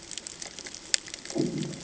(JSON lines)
{"label": "anthrophony, bomb", "recorder": "HydroMoth"}